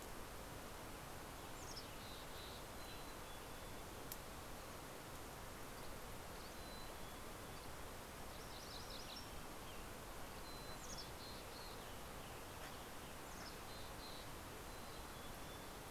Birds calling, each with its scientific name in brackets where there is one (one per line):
Western Tanager (Piranga ludoviciana)
Dusky Flycatcher (Empidonax oberholseri)
Mountain Chickadee (Poecile gambeli)
MacGillivray's Warbler (Geothlypis tolmiei)